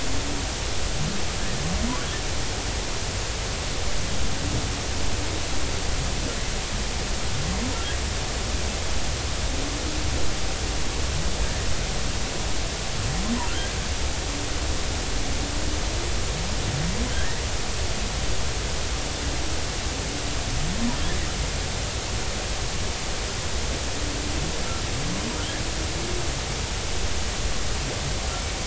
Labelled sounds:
17.1	17.4	humpback whale, 1.5 to 2.0 kHz

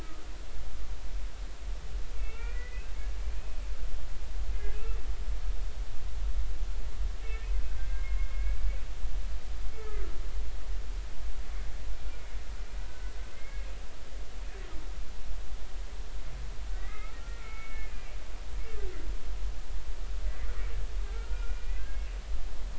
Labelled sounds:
0.0	0.2	humpback whale, 1.2 to 1.3 kHz
2.2	2.9	humpback whale, 1.8 to 2.8 kHz
3.4	3.6	humpback whale, 2.4 to 2.6 kHz
7.2	8.8	humpback whale, 1.5 to 2.3 kHz
9.8	10.0	humpback whale, 1.2 to 1.3 kHz
12.8	13.7	humpback whale, 1.4 to 2.3 kHz
16.8	18.2	humpback whale, 1.2 to 2.5 kHz
21.1	22.0	humpback whale, 1.2 to 2.7 kHz

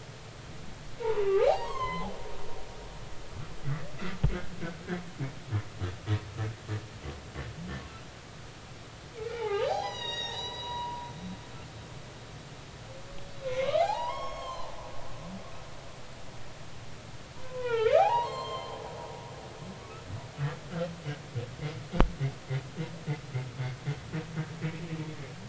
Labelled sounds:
1.0	2.1	humpback whale, 0.80 to 4.4 kHz
9.2	11.1	humpback whale, 0.80 to 6.9 kHz
13.4	14.7	humpback whale, 0.80 to 6.6 kHz
17.4	18.8	humpback whale, 0.80 to 7.6 kHz
24.6	24.9	humpback whale, 2.2 to 2.3 kHz

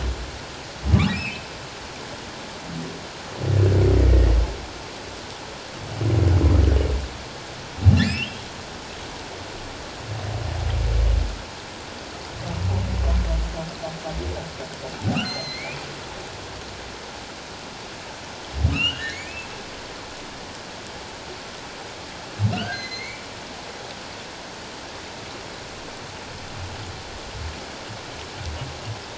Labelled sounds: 1.1	1.4	humpback whale, 2.1 to 2.9 kHz
8.0	8.5	humpback whale, 2.4 to 5.4 kHz
15.2	15.8	humpback whale, 2.0 to 6.3 kHz
18.7	19.5	humpback whale, 1.2 to 3.2 kHz
22.5	23.2	humpback whale, 1.3 to 4.6 kHz

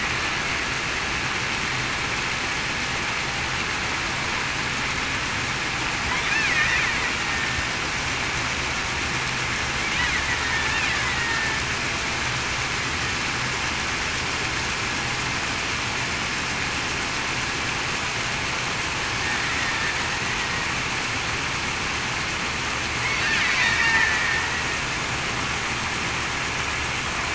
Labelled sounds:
10.4	11.6	killer whale, Bigg's (transient), 1.7 to 2.0 kHz
23.6	23.9	killer whale, Bigg's (transient), 2.2 to 2.3 kHz

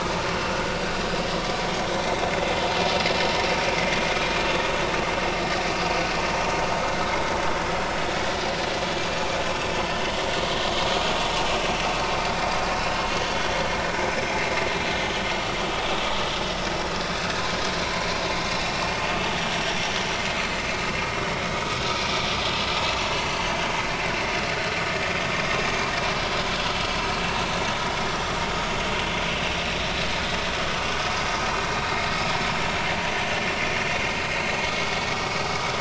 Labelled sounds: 0.5	0.8	vessel noise, 1.4 to 1.5 kHz
2.0	2.2	vessel noise, 2.0 to 2.1 kHz
17.8	18.1	vessel noise, 2.1 to 2.2 kHz
19.5	19.9	vessel noise, 5.5 to 5.7 kHz

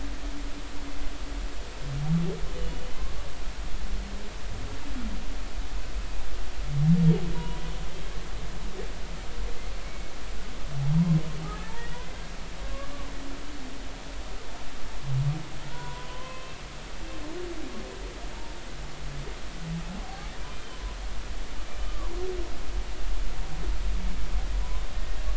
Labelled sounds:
2.9	3.1	humpback whale, 0.99 to 1.1 kHz
7.3	7.6	humpback whale, 0.90 to 1.0 kHz
9.8	10.1	humpback whale, 2.1 to 2.3 kHz
11.5	12.0	humpback whale, 1.6 to 2.0 kHz
15.7	16.6	humpback whale, 0.93 to 3.1 kHz
20.0	20.3	humpback whale, 0.80 to 0.86 kHz
20.7	22.2	humpback whale, 0.93 to 1.3 kHz
24.9	25.2	humpback whale, 1.8 to 1.9 kHz

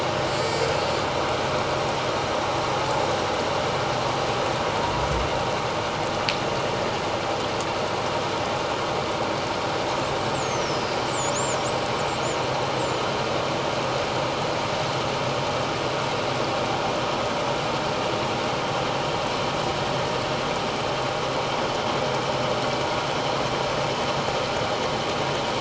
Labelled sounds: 0.3	0.7	killer whale, northern resident, 4.0 to 7.9 kHz
10.3	11.3	killer whale, northern resident, 4.7 to 8.0 kHz
12.8	13.0	killer whale, northern resident, 6.8 to 8.0 kHz

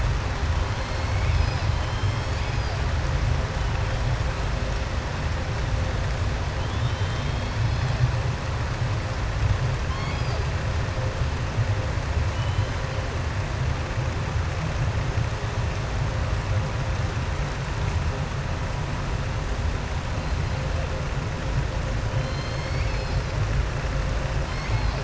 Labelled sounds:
0.7	1.2	killer whale, southern resident, 3.3 to 5.3 kHz
6.6	7.5	killer whale, southern resident, 3.0 to 4.3 kHz
9.8	10.4	killer whale, southern resident, 1.1 to 5.5 kHz
12.3	12.7	killer whale, southern resident, 2.5 to 4.1 kHz
22.1	23.3	killer whale, southern resident, 2.1 to 6.5 kHz
24.4	25.0	killer whale, southern resident, 1.1 to 5.4 kHz

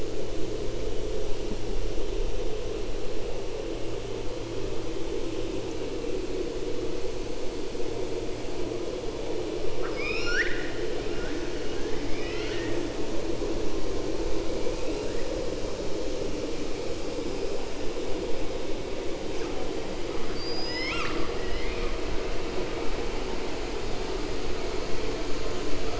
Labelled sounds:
9.7	10.8	killer whale, 1.1 to 6.9 kHz
12.0	12.8	killer whale, 0.94 to 5.3 kHz
20.2	21.9	killer whale, 1.1 to 7.9 kHz

